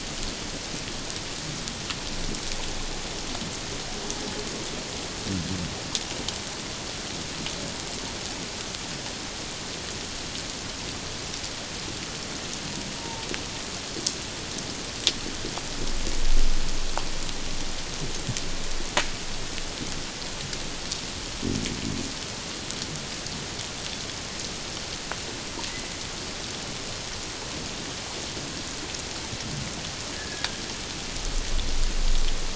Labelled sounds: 13.0	13.3	humpback whale, 0.84 to 0.97 kHz
30.1	30.6	humpback whale, 1.6 to 1.8 kHz

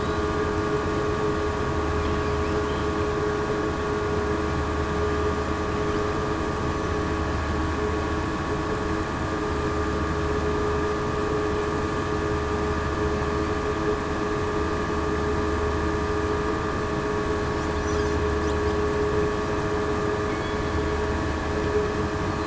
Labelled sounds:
20.3	20.6	killer whale, southern resident, 2.1 to 2.3 kHz

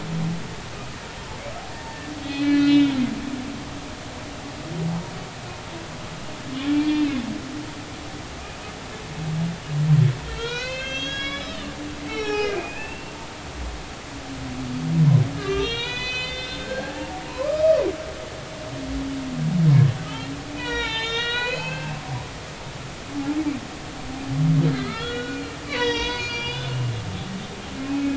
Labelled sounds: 2.2	3.0	humpback whale, 1.9 to 4.4 kHz
6.8	7.2	humpback whale, 1.8 to 4.3 kHz
10.3	11.6	humpback whale, 1.3 to 6.6 kHz
12.1	13.1	humpback whale, 0.80 to 5.7 kHz
15.4	17.8	humpback whale, 0.80 to 6.6 kHz
20.0	22.7	humpback whale, 0.83 to 6.4 kHz
24.7	26.7	humpback whale, 0.90 to 6.8 kHz
27.9	28.1	humpback whale, 2.4 to 2.6 kHz

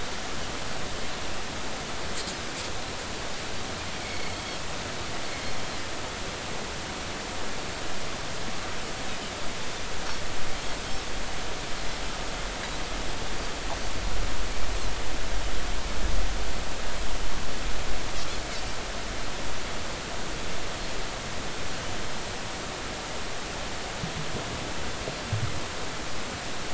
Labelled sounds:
4.1	4.4	Pacific white-sided dolphin, 4.3 to 4.5 kHz
5.0	5.4	Pacific white-sided dolphin, 2.1 to 2.4 kHz

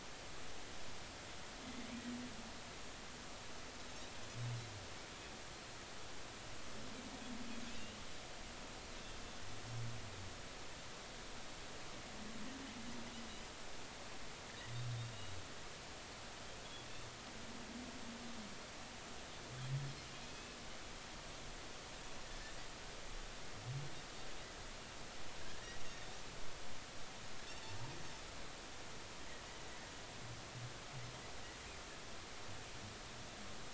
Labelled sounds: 7.7	8.0	Pacific white-sided dolphin, 2.5 to 2.9 kHz
20.3	20.6	Pacific white-sided dolphin, 2.5 to 2.7 kHz

